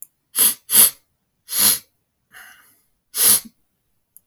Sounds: Sniff